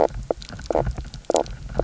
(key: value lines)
label: biophony, knock croak
recorder: SoundTrap 300